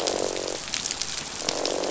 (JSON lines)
{"label": "biophony, croak", "recorder": "SoundTrap 500"}